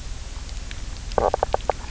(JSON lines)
{"label": "biophony, knock croak", "recorder": "SoundTrap 300"}